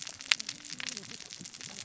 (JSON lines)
{"label": "biophony, cascading saw", "recorder": "SoundTrap 600 or HydroMoth"}